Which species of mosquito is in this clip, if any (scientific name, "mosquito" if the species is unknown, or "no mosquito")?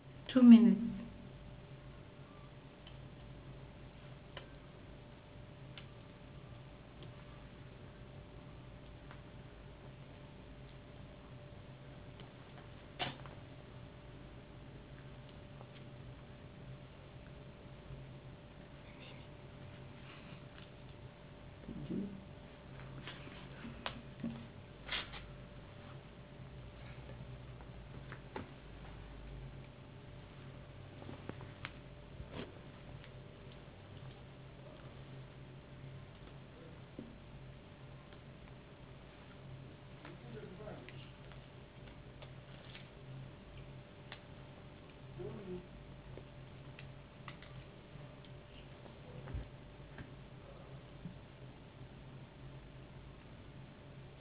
no mosquito